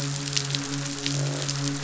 {"label": "biophony, midshipman", "recorder": "SoundTrap 500"}
{"label": "biophony, croak", "recorder": "SoundTrap 500"}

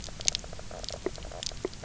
{"label": "biophony, knock croak", "recorder": "SoundTrap 300"}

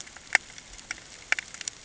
{"label": "ambient", "recorder": "HydroMoth"}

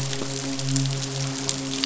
{"label": "biophony, midshipman", "recorder": "SoundTrap 500"}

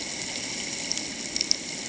{"label": "ambient", "recorder": "HydroMoth"}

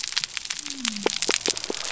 {"label": "biophony", "recorder": "SoundTrap 300"}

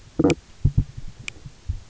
{"label": "biophony, stridulation", "recorder": "SoundTrap 300"}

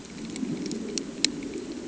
{"label": "anthrophony, boat engine", "recorder": "HydroMoth"}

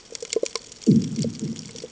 {"label": "anthrophony, bomb", "recorder": "HydroMoth"}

